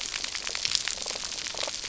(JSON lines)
{"label": "biophony", "recorder": "SoundTrap 300"}